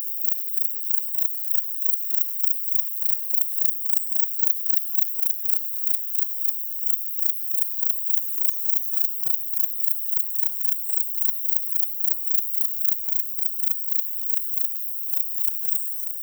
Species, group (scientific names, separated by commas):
Platycleis albopunctata, Orthoptera